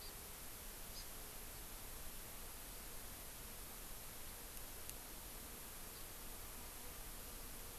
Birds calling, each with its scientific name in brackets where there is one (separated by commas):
Hawaii Amakihi (Chlorodrepanis virens)